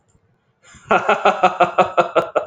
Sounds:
Laughter